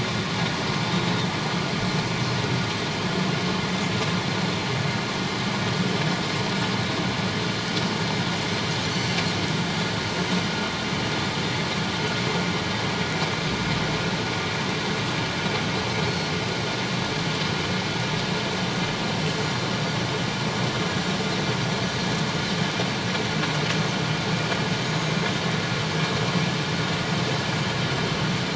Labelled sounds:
0.9	1.3	Pacific white-sided dolphin, 3.5 to 3.9 kHz
16.1	16.3	Pacific white-sided dolphin, 4.2 to 4.4 kHz
24.8	25.2	Pacific white-sided dolphin, 6.4 to 6.8 kHz

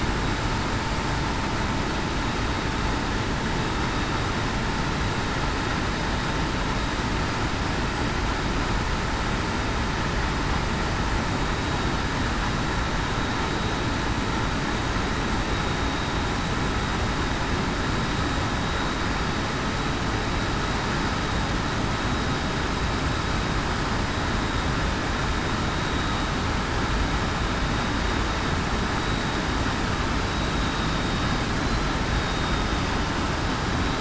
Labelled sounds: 30.3	30.7	vessel noise, 3.8 to 3.9 kHz
32.1	32.6	vessel noise, 3.7 to 3.8 kHz

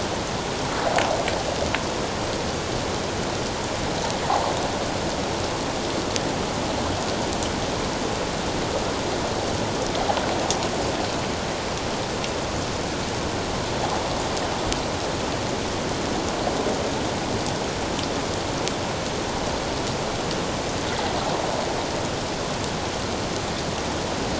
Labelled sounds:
4.3	4.5	water noise, 0.78 to 1.2 kHz

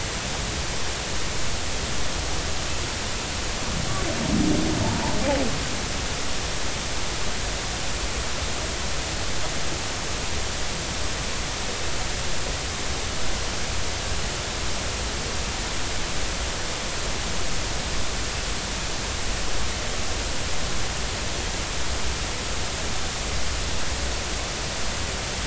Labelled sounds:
4.8	5.1	humpback whale, 0.83 to 1.0 kHz

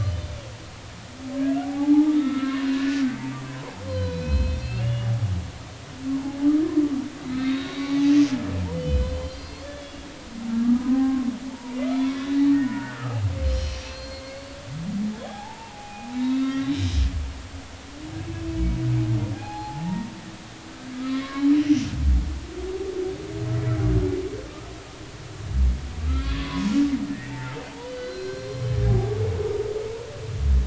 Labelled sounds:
1.6	5.2	humpback whale, 0.80 to 4.4 kHz
7.3	8.0	humpback whale, 2.1 to 4.7 kHz
8.7	10.0	humpback whale, 2.9 to 4.8 kHz
10.9	14.6	humpback whale, 0.80 to 5.9 kHz
15.2	16.9	humpback whale, 0.80 to 4.0 kHz
19.3	20.1	humpback whale, 0.80 to 4.3 kHz
21.0	21.9	humpback whale, 1.0 to 6.1 kHz
26.1	26.7	humpback whale, 0.93 to 3.6 kHz
27.1	29.1	humpback whale, 0.80 to 4.6 kHz

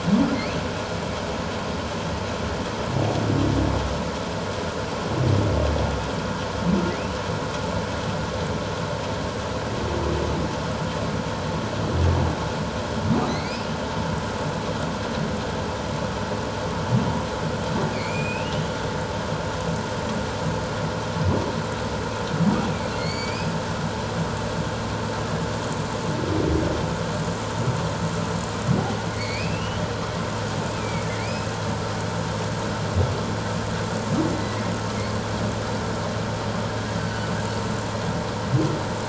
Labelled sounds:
13.3	13.7	humpback whale, 2.0 to 5.3 kHz
17.9	18.6	humpback whale, 2.0 to 7.5 kHz
23.0	23.5	humpback whale, 2.0 to 7.1 kHz
29.1	29.8	humpback whale, 2.0 to 4.7 kHz
30.8	31.5	humpback whale, 2.1 to 2.6 kHz
34.3	34.6	humpback whale, 1.9 to 2.1 kHz
37.0	37.3	humpback whale, 1.5 to 4.6 kHz

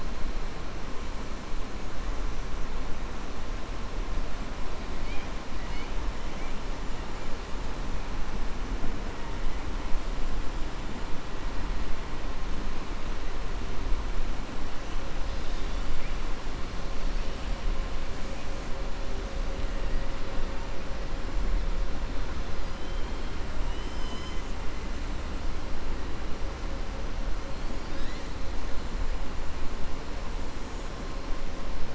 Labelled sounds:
22.6	23.3	killer whale, southern resident, 2.4 to 5.0 kHz

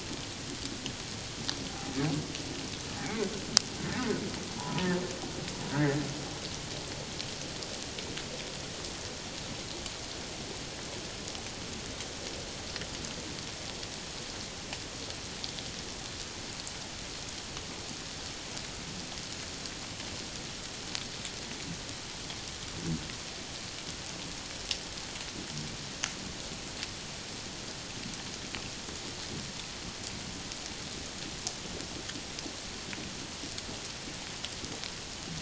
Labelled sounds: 1.7	2.0	humpback whale, 0.78 to 0.91 kHz
3.0	4.1	humpback whale, 1.7 to 2.5 kHz
4.6	5.0	humpback whale, 0.78 to 1.9 kHz
5.7	6.0	humpback whale, 1.4 to 2.1 kHz

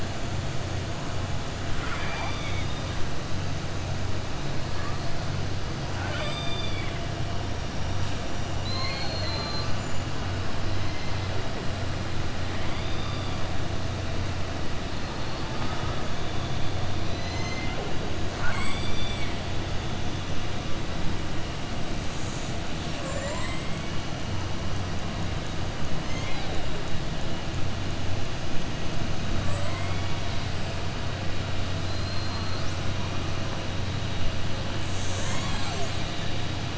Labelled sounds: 5.9	7.0	killer whale, southern resident, 0.61 to 4.8 kHz

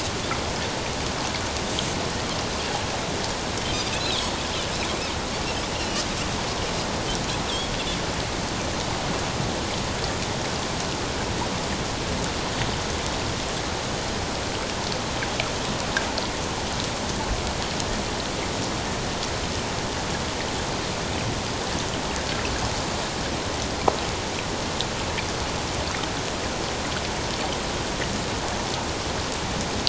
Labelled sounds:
4.0	4.3	Pacific white-sided dolphin, 3.2 to 4.2 kHz
5.8	6.0	Pacific white-sided dolphin, 2.6 to 3.0 kHz

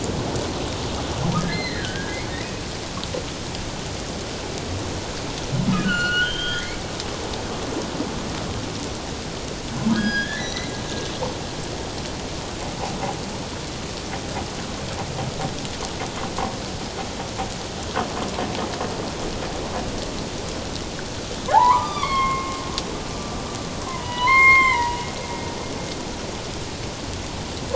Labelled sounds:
1.4	2.3	humpback whale, 1.5 to 4.2 kHz
5.8	6.8	humpback whale, 1.3 to 4.5 kHz
9.9	10.7	humpback whale, 1.4 to 6.1 kHz
21.5	22.6	humpback whale, 0.78 to 6.2 kHz
23.9	25.6	humpback whale, 0.88 to 7.5 kHz

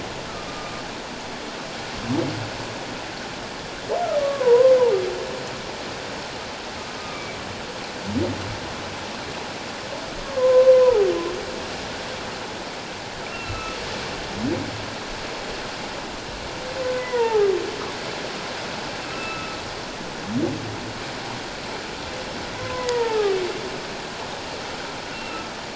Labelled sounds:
0.5	0.8	humpback whale, 1.16 to 1.25 kHz
4.2	4.7	humpback whale, 0.88 to 1.2 kHz
7.0	7.4	humpback whale, 1.1 to 2.5 kHz
10.2	11.1	humpback whale, 0.78 to 1.2 kHz
13.3	13.8	humpback whale, 1.2 to 2.8 kHz
17.0	17.5	humpback whale, 0.78 to 2.1 kHz
19.1	19.6	humpback whale, 1.2 to 2.7 kHz
22.6	23.3	humpback whale, 0.78 to 2.0 kHz
25.1	25.5	humpback whale, 1.2 to 2.8 kHz

